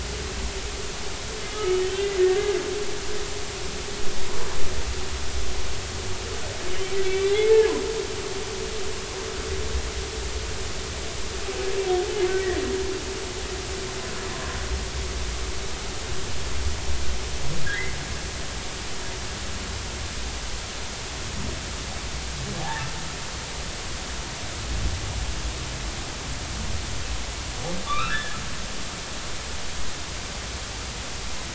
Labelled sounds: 1.5	2.1	humpback whale, 1.2 to 3.3 kHz
7.0	7.6	humpback whale, 1.9 to 2.4 kHz
12.3	12.6	humpback whale, 1.7 to 2.0 kHz
17.6	18.0	humpback whale, 1.5 to 2.2 kHz
22.6	22.9	humpback whale, 0.80 to 2.0 kHz
27.9	28.4	humpback whale, 1.1 to 4.0 kHz

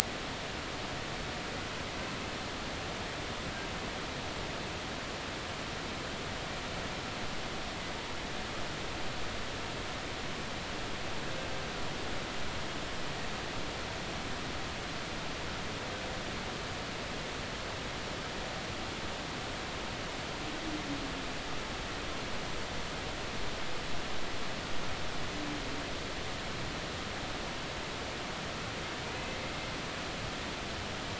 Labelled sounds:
29.0	29.3	humpback whale, 2.3 to 2.6 kHz

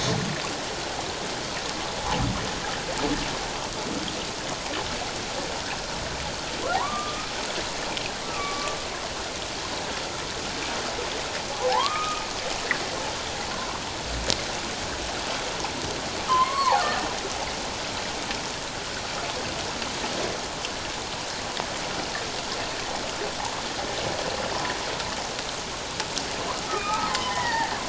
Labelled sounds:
6.7	7.3	humpback whale, 0.78 to 1.3 kHz
8.3	8.8	humpback whale, 1.1 to 1.4 kHz
11.5	12.3	humpback whale, 0.78 to 1.3 kHz
13.5	13.8	humpback whale, 0.94 to 1.2 kHz
16.3	16.9	humpback whale, 0.78 to 2.2 kHz
26.7	27.7	humpback whale, 0.78 to 2.7 kHz

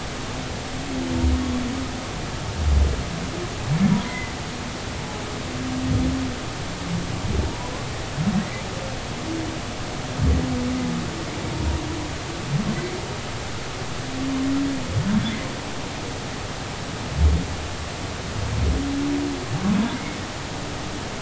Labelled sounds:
4.0	4.3	humpback whale, 2.0 to 2.1 kHz
7.5	7.7	humpback whale, 0.90 to 1.0 kHz

